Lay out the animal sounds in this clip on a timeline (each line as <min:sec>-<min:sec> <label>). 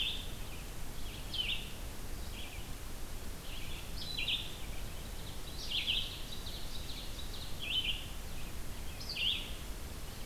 0:00.0-0:10.3 Red-eyed Vireo (Vireo olivaceus)
0:04.9-0:07.7 Ovenbird (Seiurus aurocapilla)